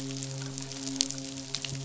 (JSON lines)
{"label": "biophony, midshipman", "recorder": "SoundTrap 500"}